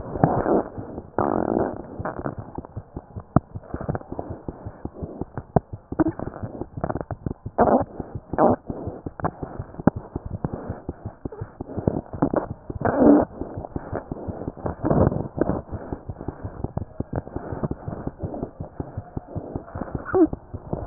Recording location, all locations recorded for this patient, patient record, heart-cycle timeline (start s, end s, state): aortic valve (AV)
aortic valve (AV)+mitral valve (MV)
#Age: Infant
#Sex: Male
#Height: 54.0 cm
#Weight: 5.4 kg
#Pregnancy status: False
#Murmur: Unknown
#Murmur locations: nan
#Most audible location: nan
#Systolic murmur timing: nan
#Systolic murmur shape: nan
#Systolic murmur grading: nan
#Systolic murmur pitch: nan
#Systolic murmur quality: nan
#Diastolic murmur timing: nan
#Diastolic murmur shape: nan
#Diastolic murmur grading: nan
#Diastolic murmur pitch: nan
#Diastolic murmur quality: nan
#Outcome: Abnormal
#Campaign: 2015 screening campaign
0.00	4.29	unannotated
4.29	4.35	S1
4.35	4.46	systole
4.46	4.51	S2
4.51	4.65	diastole
4.65	4.71	S1
4.71	4.84	systole
4.84	4.87	S2
4.87	5.01	diastole
5.01	5.07	S1
5.07	5.20	systole
5.20	5.25	S2
5.25	5.37	diastole
5.37	5.41	S1
5.41	9.94	unannotated
9.94	10.00	S1
10.00	10.12	systole
10.12	10.19	S2
10.19	10.32	diastole
10.32	10.38	S1
10.38	10.52	systole
10.52	10.57	S2
10.57	10.68	diastole
10.68	10.74	S1
10.74	10.87	systole
10.87	10.94	S2
10.94	11.05	diastole
11.05	11.11	S1
11.11	11.24	systole
11.24	11.29	S2
11.29	11.40	diastole
11.40	11.45	S1
11.45	11.58	systole
11.58	11.63	S2
11.63	11.76	diastole
11.76	11.82	S1
11.82	20.86	unannotated